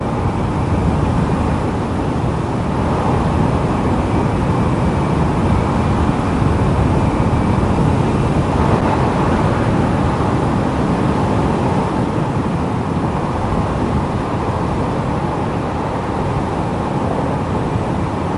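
A vehicle speeds by with muffled wind sounds. 0:00.0 - 0:18.3

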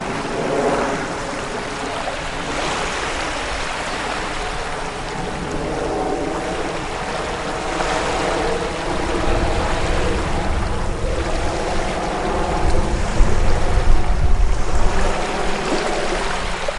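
A helicopter is flying in the distance. 0:00.0 - 0:16.8
Waves washing up on the beach. 0:00.0 - 0:16.8

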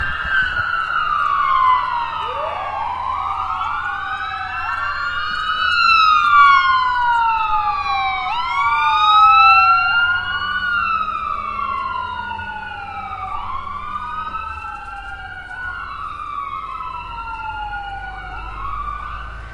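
A police siren sounds loudly in a repeating pattern. 0:00.0 - 0:00.9
Multiple fire truck sirens sound loudly in a repeating pattern. 0:00.9 - 0:09.5
Multiple fire truck sirens sound loudly with a fading pattern. 0:09.5 - 0:19.5

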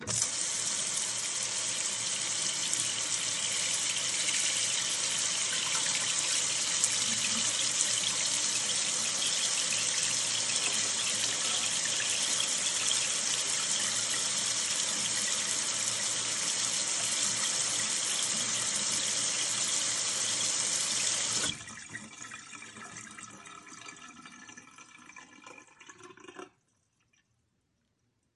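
Water flowing from a kitchen sink. 0:00.0 - 0:21.8
Water flowing down a drain faintly. 0:21.7 - 0:26.7

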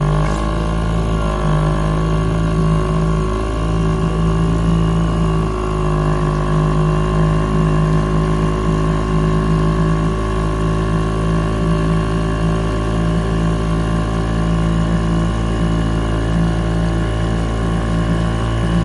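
An outboard boat engine accelerates and decelerates slightly. 0:00.0 - 0:18.8

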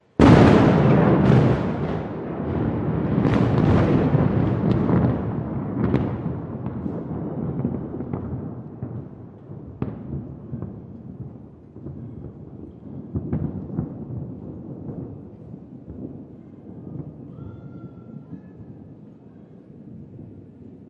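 A powerful thunderclap. 0:00.1 - 0:06.7
A long, rolling echo follows the thunder. 0:06.7 - 0:18.5

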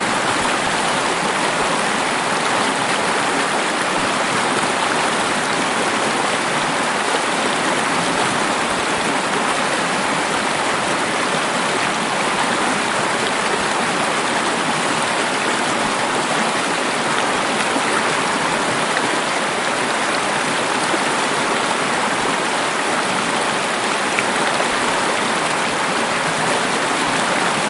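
A river bubbles loudly. 0:00.0 - 0:27.7

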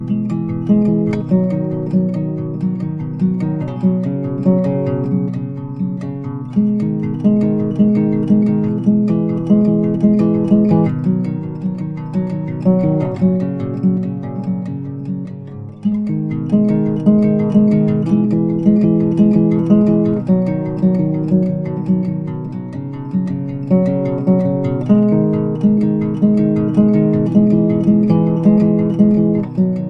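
An acoustic guitar plays a relaxing melody. 0:00.0 - 0:29.9

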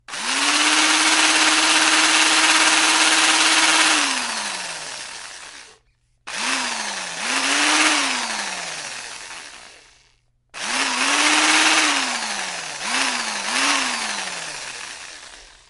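A drill turns on, makes a loud drilling sound, then gradually fades away. 0:00.0 - 0:05.7
A drill turns on briefly and then stops. 0:06.3 - 0:07.2
A drill runs briefly and then gradually quiets. 0:07.2 - 0:09.9
A drill turns on, quiets down briefly, and then becomes louder again. 0:10.5 - 0:12.8
The drill sound increases twice and then gradually fades away. 0:12.8 - 0:15.7

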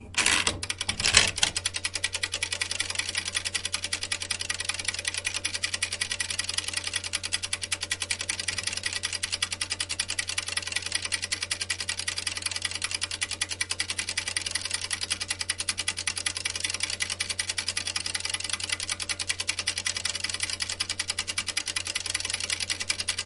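A mechanical timer winding up with two loud ratcheting sounds. 0:00.0 - 0:01.9
A mechanical timer ticks rhythmically with periodic louder ticks. 0:01.5 - 0:23.2

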